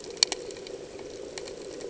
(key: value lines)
label: anthrophony, boat engine
recorder: HydroMoth